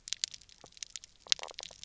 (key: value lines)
label: biophony, knock croak
recorder: SoundTrap 300